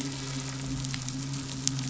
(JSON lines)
{"label": "anthrophony, boat engine", "recorder": "SoundTrap 500"}